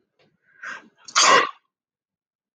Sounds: Sneeze